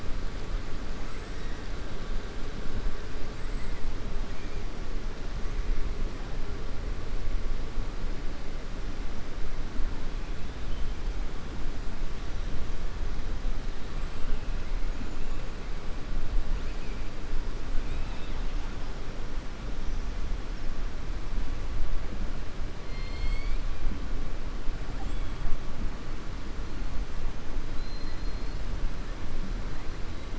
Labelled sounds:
17.8	18.5	killer whale, 2.0 to 4.6 kHz
22.8	23.6	killer whale, 2.1 to 4.8 kHz
24.9	25.5	killer whale, 7.2 to 8.0 kHz
27.7	28.6	killer whale, 3.6 to 4.6 kHz

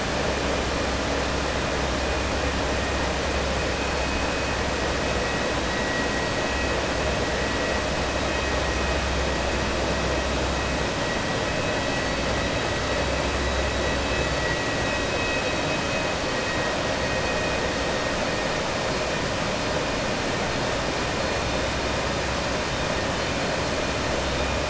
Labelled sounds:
15.1	15.8	vessel noise, 1.9 to 4.6 kHz

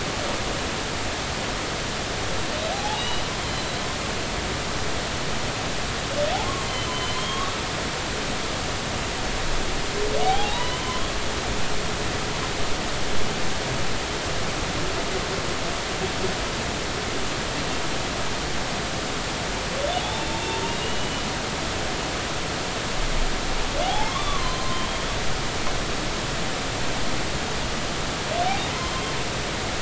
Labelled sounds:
2.7	3.8	humpback whale, 0.80 to 4.2 kHz
6.9	7.6	humpback whale, 1.0 to 3.4 kHz
10.2	11.0	humpback whale, 0.80 to 3.1 kHz
20.0	20.3	humpback whale, 0.80 to 0.93 kHz
20.6	21.2	humpback whale, 2.7 to 3.0 kHz
23.9	24.9	humpback whale, 0.80 to 3.6 kHz
28.9	29.2	humpback whale, 3.1 to 3.2 kHz

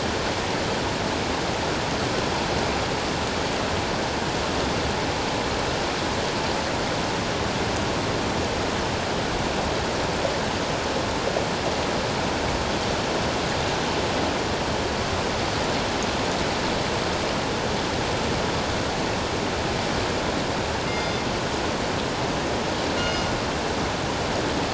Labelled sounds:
20.9	21.2	killer whale, northern resident, G clan, call N24ii, 2.1 to 5.0 kHz
23.0	23.3	killer whale, northern resident, G clan, call N24ii, 2.8 to 6.5 kHz

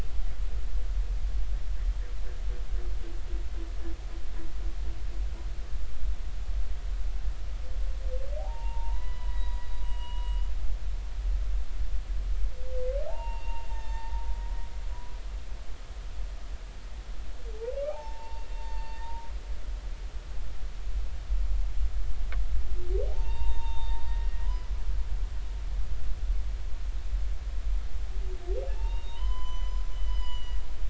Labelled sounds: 8.4	10.5	humpback whale, 0.80 to 4.9 kHz
13.1	14.3	humpback whale, 0.80 to 7.3 kHz
14.9	15.2	humpback whale, 0.96 to 1.1 kHz
17.9	19.3	humpback whale, 0.80 to 5.5 kHz
23.1	24.8	humpback whale, 0.80 to 6.5 kHz
28.7	30.6	humpback whale, 0.83 to 6.1 kHz

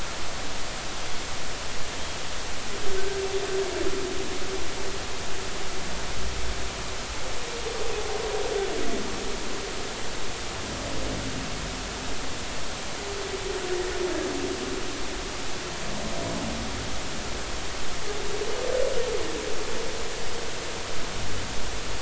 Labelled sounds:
4.0	4.2	humpback whale, 1.5 to 1.7 kHz

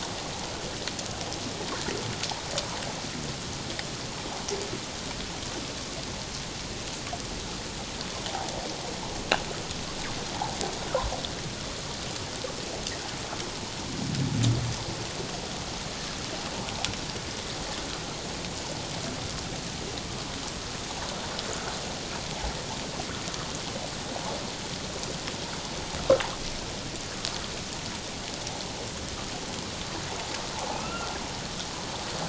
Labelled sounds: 30.7	31.1	humpback whale, 1.2 to 2.8 kHz

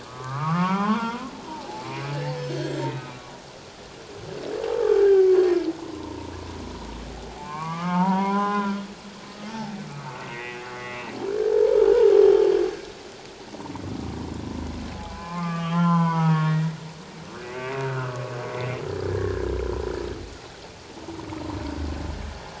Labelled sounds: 0.0	3.2	humpback whale, 0.78 to 3.4 kHz
5.0	5.3	humpback whale, 1.5 to 1.7 kHz
5.8	6.3	humpback whale, 0.84 to 1.1 kHz
7.4	8.8	humpback whale, 0.78 to 3.8 kHz
9.4	11.1	humpback whale, 1.2 to 2.8 kHz
12.2	12.5	humpback whale, 2.9 to 3.2 kHz
15.0	16.8	humpback whale, 0.78 to 3.7 kHz
17.8	18.2	humpback whale, 1.2 to 1.6 kHz
19.1	19.5	humpback whale, 1.6 to 1.9 kHz

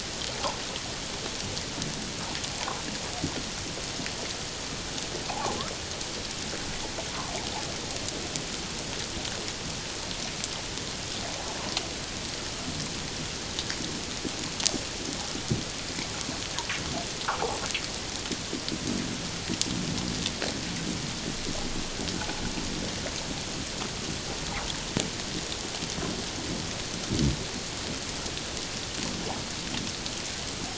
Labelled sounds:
5.3	5.6	fish, 0.78 to 1.2 kHz

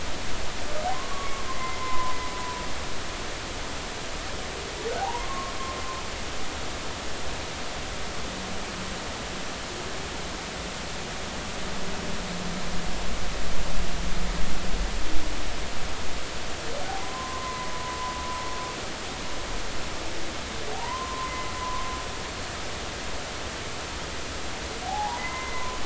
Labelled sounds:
0.9	2.2	humpback whale, 0.93 to 1.2 kHz
5.0	5.5	humpback whale, 0.80 to 1.2 kHz
17.0	17.7	humpback whale, 0.96 to 1.1 kHz
20.7	21.9	humpback whale, 0.80 to 1.1 kHz
24.8	25.8	humpback whale, 0.80 to 2.1 kHz

